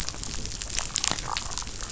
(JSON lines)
{"label": "biophony, damselfish", "recorder": "SoundTrap 500"}